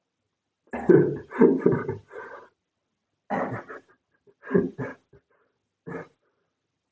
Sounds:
Laughter